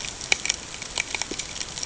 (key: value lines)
label: ambient
recorder: HydroMoth